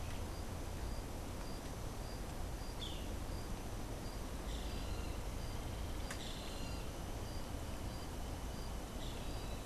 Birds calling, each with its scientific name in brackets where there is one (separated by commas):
Boat-billed Flycatcher (Megarynchus pitangua)